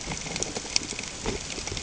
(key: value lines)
label: ambient
recorder: HydroMoth